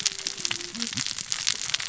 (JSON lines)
{"label": "biophony, cascading saw", "recorder": "SoundTrap 600 or HydroMoth"}